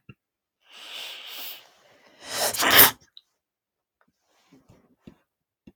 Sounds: Sneeze